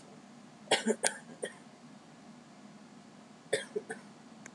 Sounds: Cough